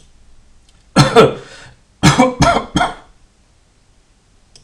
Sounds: Cough